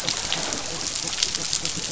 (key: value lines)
label: biophony
recorder: SoundTrap 500